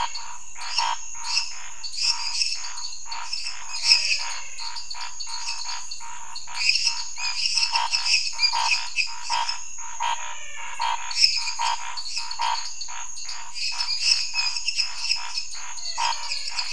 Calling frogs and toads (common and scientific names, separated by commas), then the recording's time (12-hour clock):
menwig frog (Physalaemus albonotatus), lesser tree frog (Dendropsophus minutus), dwarf tree frog (Dendropsophus nanus), Scinax fuscovarius
9:30pm